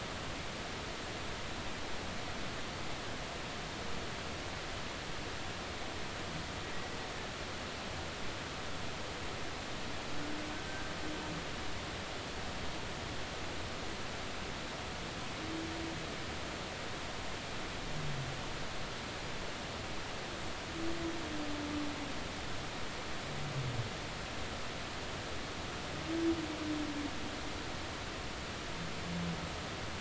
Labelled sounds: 10.5	10.9	humpback whale, 1.5 to 1.6 kHz

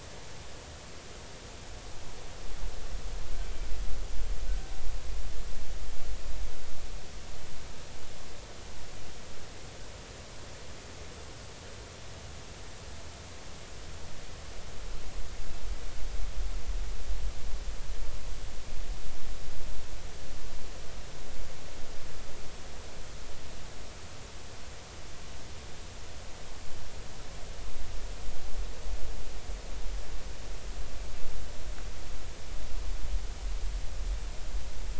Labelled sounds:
3.4	3.7	killer whale, 3.1 to 3.2 kHz

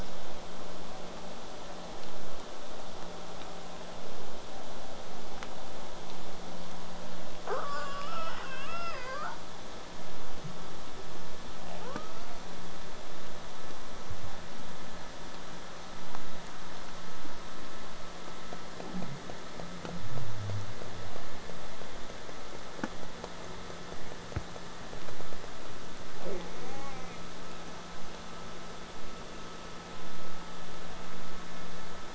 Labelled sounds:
7.4	9.4	killer whale, southern resident, J pod, 0.31 to 7.3 kHz
26.2	27.2	killer whale, southern resident, J pod, 0.27 to 6.6 kHz

